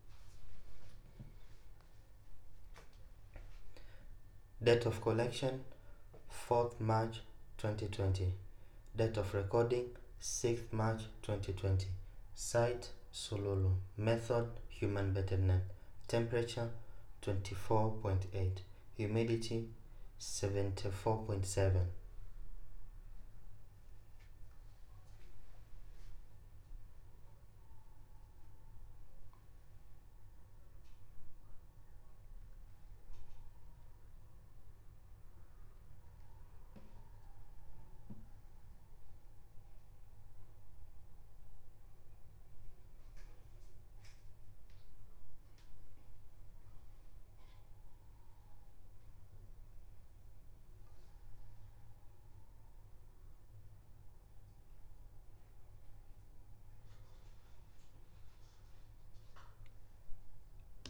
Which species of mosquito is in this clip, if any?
no mosquito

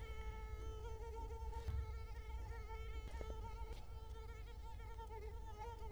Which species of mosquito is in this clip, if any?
Culex quinquefasciatus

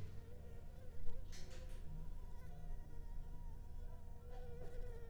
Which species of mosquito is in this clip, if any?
Anopheles gambiae s.l.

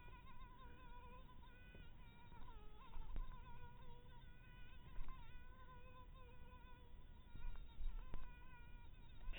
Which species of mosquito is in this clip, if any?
mosquito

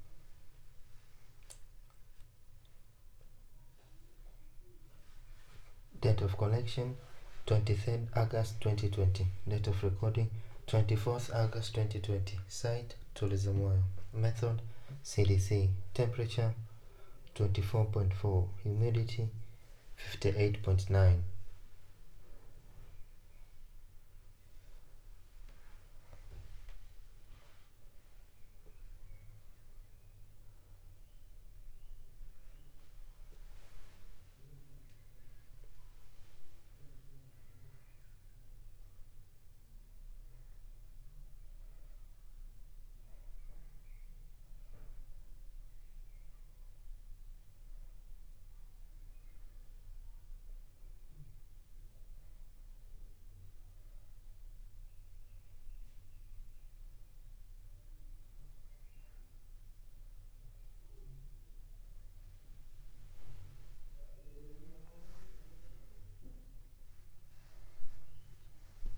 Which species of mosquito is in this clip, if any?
no mosquito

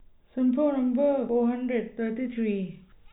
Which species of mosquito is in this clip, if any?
no mosquito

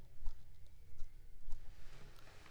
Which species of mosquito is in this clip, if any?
Aedes aegypti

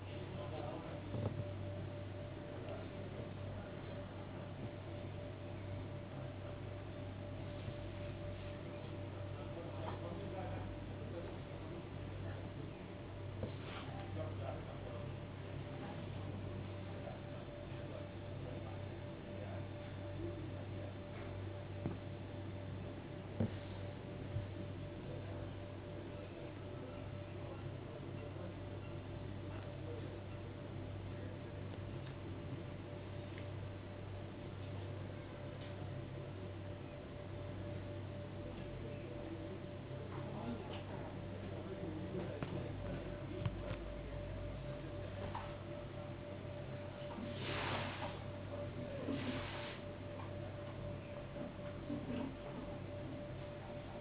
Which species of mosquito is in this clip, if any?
no mosquito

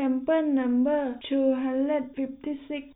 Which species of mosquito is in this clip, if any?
no mosquito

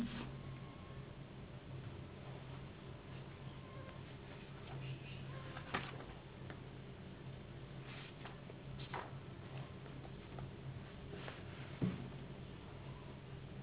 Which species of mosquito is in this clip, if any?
Anopheles gambiae s.s.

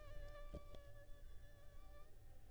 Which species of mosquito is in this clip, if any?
Anopheles funestus s.s.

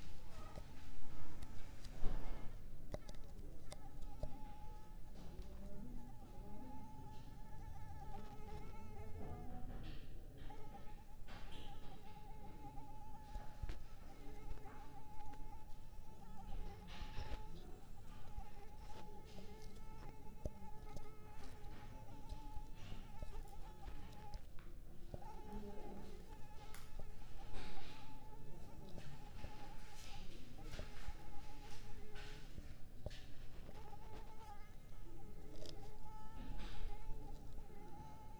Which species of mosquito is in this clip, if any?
Culex pipiens complex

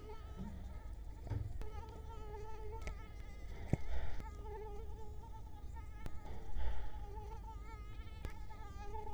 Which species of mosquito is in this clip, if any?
Culex quinquefasciatus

